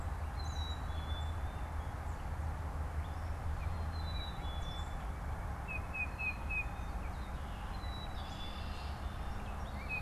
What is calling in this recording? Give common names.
Gray Catbird, Black-capped Chickadee, Tufted Titmouse, Song Sparrow